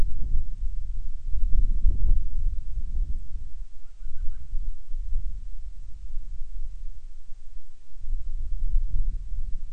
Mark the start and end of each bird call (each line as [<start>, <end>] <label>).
[3.63, 4.54] Band-rumped Storm-Petrel (Hydrobates castro)